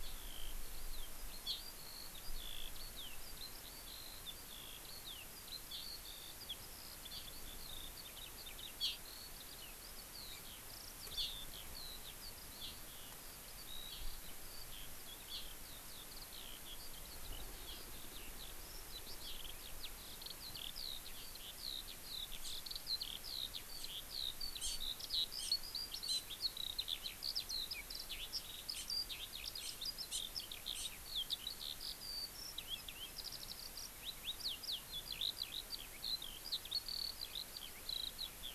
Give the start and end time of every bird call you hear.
0.0s-38.5s: Eurasian Skylark (Alauda arvensis)
1.4s-1.6s: Hawaii Amakihi (Chlorodrepanis virens)
8.8s-9.0s: Hawaii Amakihi (Chlorodrepanis virens)
11.1s-11.5s: Hawaii Amakihi (Chlorodrepanis virens)
22.4s-22.6s: Hawaii Amakihi (Chlorodrepanis virens)
23.8s-23.9s: Hawaii Amakihi (Chlorodrepanis virens)
24.6s-24.8s: Hawaii Amakihi (Chlorodrepanis virens)
25.4s-25.5s: Hawaii Amakihi (Chlorodrepanis virens)
26.1s-26.2s: Hawaii Amakihi (Chlorodrepanis virens)
28.7s-28.9s: Hawaii Amakihi (Chlorodrepanis virens)
29.6s-29.8s: Hawaii Amakihi (Chlorodrepanis virens)
30.1s-30.2s: Hawaii Amakihi (Chlorodrepanis virens)
30.7s-30.9s: Hawaii Amakihi (Chlorodrepanis virens)

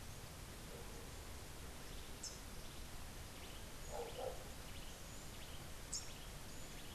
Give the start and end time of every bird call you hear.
2.1s-2.5s: Rufous-capped Warbler (Basileuterus rufifrons)
3.4s-6.9s: Cabanis's Wren (Cantorchilus modestus)
5.8s-6.2s: Rufous-capped Warbler (Basileuterus rufifrons)

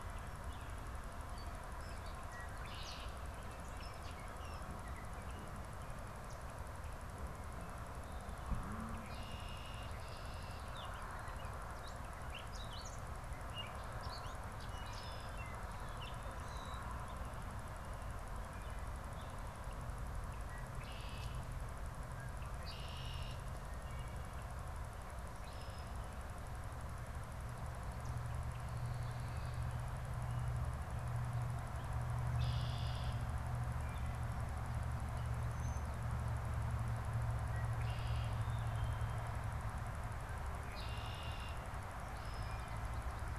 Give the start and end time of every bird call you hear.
2.0s-3.2s: Red-winged Blackbird (Agelaius phoeniceus)
8.5s-10.7s: Red-winged Blackbird (Agelaius phoeniceus)
10.6s-16.9s: Gray Catbird (Dumetella carolinensis)
14.5s-15.3s: Wood Thrush (Hylocichla mustelina)
20.2s-23.5s: Red-winged Blackbird (Agelaius phoeniceus)
32.1s-33.3s: Red-winged Blackbird (Agelaius phoeniceus)
37.3s-38.3s: Red-winged Blackbird (Agelaius phoeniceus)
40.4s-41.7s: Red-winged Blackbird (Agelaius phoeniceus)

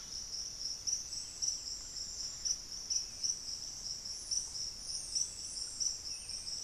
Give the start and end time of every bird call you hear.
0.0s-6.6s: Buff-throated Saltator (Saltator maximus)

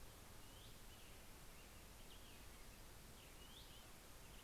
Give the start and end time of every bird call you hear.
0.3s-0.9s: Hutton's Vireo (Vireo huttoni)
3.4s-4.0s: Hutton's Vireo (Vireo huttoni)

